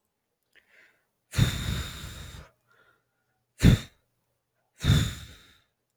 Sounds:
Sigh